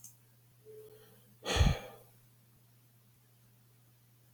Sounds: Sigh